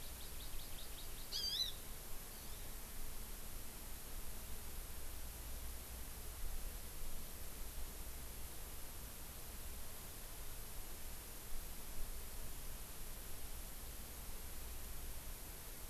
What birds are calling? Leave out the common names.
Chlorodrepanis virens